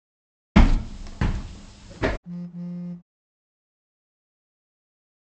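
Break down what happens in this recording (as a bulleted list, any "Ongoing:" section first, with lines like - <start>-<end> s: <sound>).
- 0.56-2.17 s: footsteps can be heard
- 2.23-3.02 s: there is the sound of a telephone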